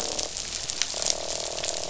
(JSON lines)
{"label": "biophony, croak", "recorder": "SoundTrap 500"}